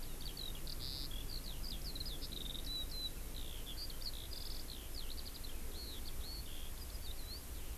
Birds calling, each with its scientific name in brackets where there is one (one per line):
Warbling White-eye (Zosterops japonicus)
Eurasian Skylark (Alauda arvensis)